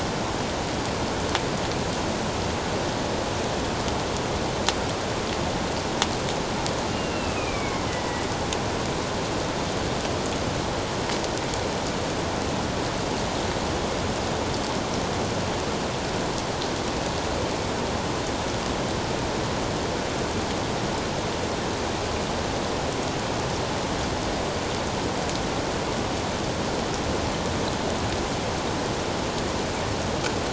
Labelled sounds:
6.9	7.9	killer whale, northern resident, A clan, AA subclan, A04 pod, 2.0 to 2.9 kHz

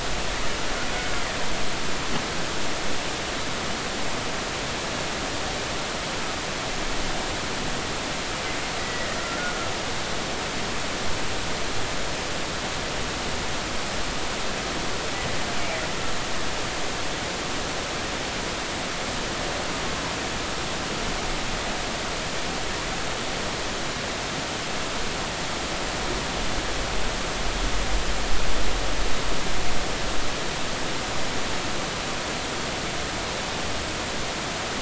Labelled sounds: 8.8	9.5	killer whale, Bigg's (transient), 1.3 to 2.0 kHz

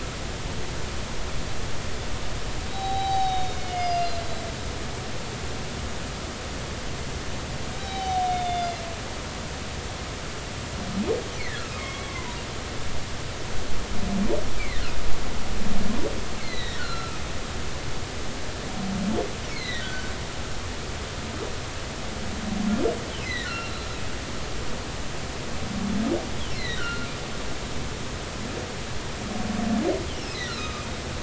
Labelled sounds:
2.7	4.4	humpback whale, 0.80 to 5.1 kHz
7.8	8.8	humpback whale, 0.80 to 5.0 kHz
11.4	12.4	humpback whale, 0.93 to 2.5 kHz
14.6	14.8	humpback whale, 1.7 to 2.4 kHz
16.4	17.2	humpback whale, 1.2 to 4.4 kHz
19.5	20.1	humpback whale, 1.4 to 4.4 kHz
23.2	23.7	humpback whale, 1.3 to 2.8 kHz
26.5	27.1	humpback whale, 1.3 to 4.3 kHz
30.1	30.9	humpback whale, 1.1 to 3.0 kHz

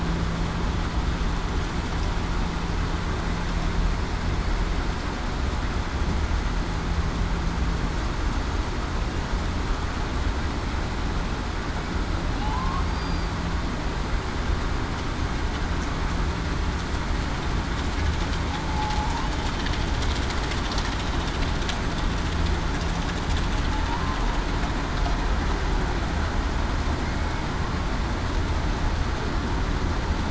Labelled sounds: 12.8	13.3	killer whale, southern resident, 4.6 to 4.8 kHz
18.5	19.1	humpback whale, 0.77 to 0.89 kHz

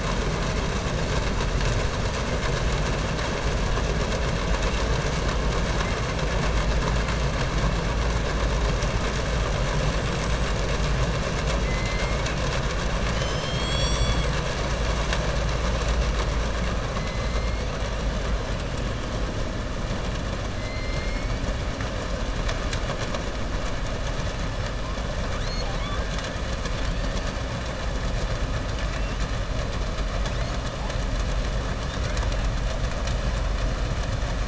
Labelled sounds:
13.0	14.3	killer whale, southern resident, 2.2 to 7.8 kHz

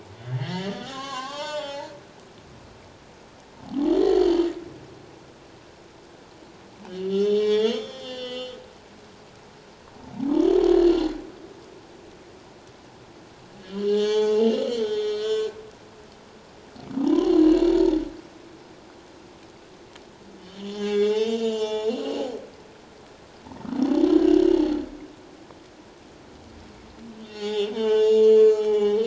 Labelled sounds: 0.4	1.9	humpback whale, 0.78 to 7.3 kHz
3.7	4.9	humpback whale, 0.78 to 7.6 kHz
6.8	8.6	humpback whale, 0.81 to 7.3 kHz
13.6	15.6	humpback whale, 0.81 to 7.1 kHz
17.0	17.3	humpback whale, 0.78 to 1.1 kHz
20.4	22.1	humpback whale, 0.81 to 7.2 kHz
24.1	24.4	humpback whale, 1.5 to 1.7 kHz
27.2	29.0	humpback whale, 0.78 to 7.2 kHz

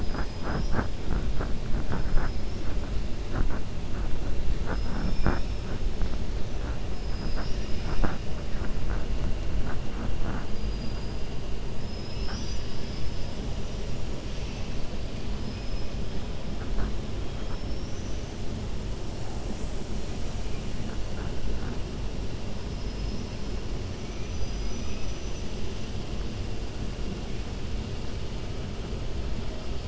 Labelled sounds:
17.4	18.3	killer whale, 5.2 to 6.3 kHz

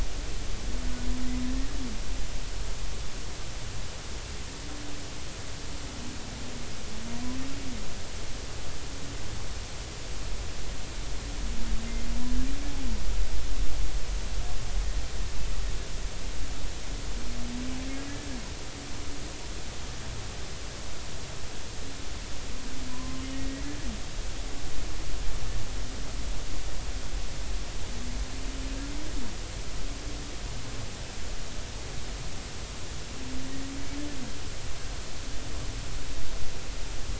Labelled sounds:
22.9	23.7	humpback whale, 0.96 to 2.0 kHz

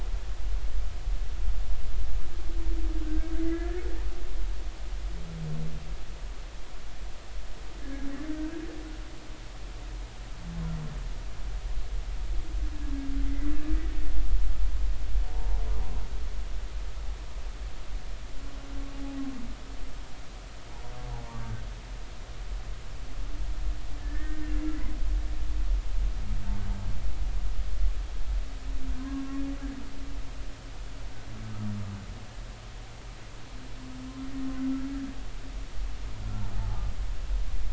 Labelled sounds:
3.0	3.8	humpback whale, 1.5 to 2.1 kHz
7.8	8.5	humpback whale, 1.5 to 1.8 kHz
13.3	13.6	humpback whale, 1.9 to 2.1 kHz
15.3	15.6	humpback whale, 0.80 to 1.0 kHz
21.4	21.6	humpback whale, 1.5 to 1.6 kHz
24.0	24.4	humpback whale, 1.7 to 1.9 kHz
29.0	29.2	humpback whale, 0.96 to 1.1 kHz
36.2	36.8	humpback whale, 0.80 to 1.5 kHz

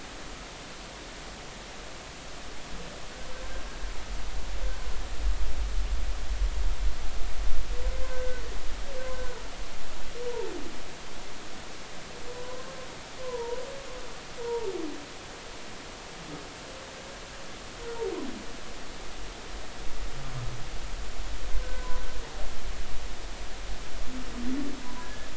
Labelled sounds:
8.0	9.4	humpback whale, 1.4 to 1.6 kHz
10.3	10.5	humpback whale, 0.86 to 1.0 kHz
12.3	12.7	humpback whale, 0.96 to 1.1 kHz
13.2	14.7	humpback whale, 0.83 to 1.1 kHz
21.6	22.0	humpback whale, 0.96 to 1.6 kHz
24.8	25.3	humpback whale, 0.93 to 1.8 kHz

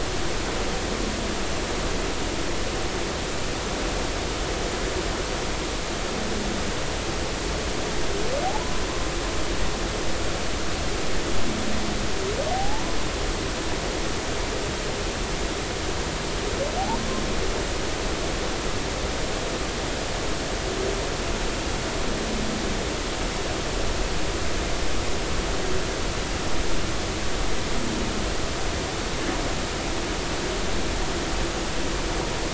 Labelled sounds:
8.4	8.7	humpback whale, 0.80 to 1.1 kHz
12.5	13.0	humpback whale, 0.80 to 1.1 kHz

